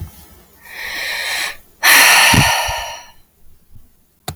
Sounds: Sigh